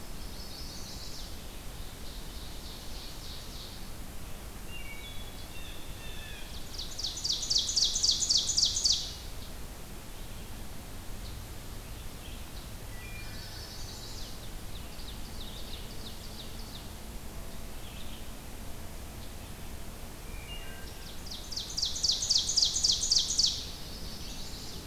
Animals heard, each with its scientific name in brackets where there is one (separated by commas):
Blue Jay (Cyanocitta cristata), Chestnut-sided Warbler (Setophaga pensylvanica), Wood Thrush (Hylocichla mustelina), Ovenbird (Seiurus aurocapilla)